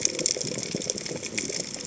{"label": "biophony", "recorder": "HydroMoth"}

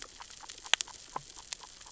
{"label": "biophony, grazing", "recorder": "SoundTrap 600 or HydroMoth"}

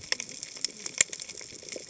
{"label": "biophony, cascading saw", "recorder": "HydroMoth"}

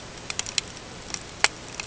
{"label": "ambient", "recorder": "HydroMoth"}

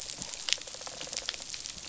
{"label": "biophony, rattle response", "recorder": "SoundTrap 500"}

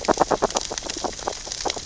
{"label": "biophony, grazing", "recorder": "SoundTrap 600 or HydroMoth"}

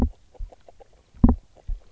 {"label": "biophony, grazing", "recorder": "SoundTrap 300"}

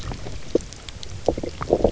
{"label": "biophony, knock croak", "recorder": "SoundTrap 300"}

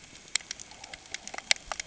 {"label": "ambient", "recorder": "HydroMoth"}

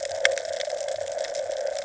{"label": "ambient", "recorder": "HydroMoth"}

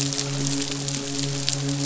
{"label": "biophony, midshipman", "recorder": "SoundTrap 500"}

